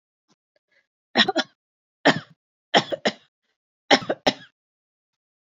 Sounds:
Cough